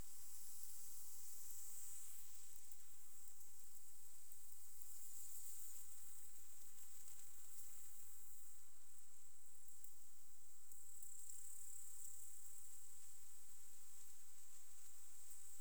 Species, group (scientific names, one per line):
Tettigonia cantans
Orthoptera